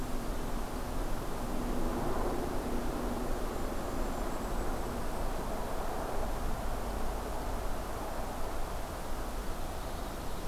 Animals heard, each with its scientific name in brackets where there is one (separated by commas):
Golden-crowned Kinglet (Regulus satrapa)